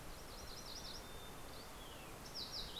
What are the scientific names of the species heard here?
Geothlypis tolmiei, Poecile gambeli, Passerella iliaca